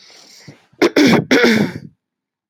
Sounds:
Throat clearing